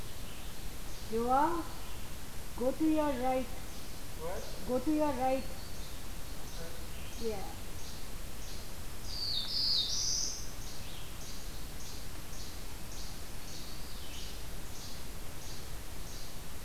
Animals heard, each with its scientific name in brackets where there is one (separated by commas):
Red-eyed Vireo (Vireo olivaceus), Least Flycatcher (Empidonax minimus), Black-throated Blue Warbler (Setophaga caerulescens)